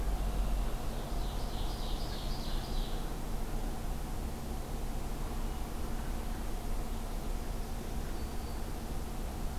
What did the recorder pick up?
Red-winged Blackbird, Ovenbird, Black-throated Green Warbler